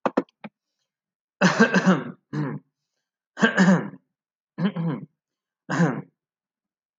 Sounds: Throat clearing